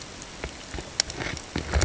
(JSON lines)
{"label": "ambient", "recorder": "HydroMoth"}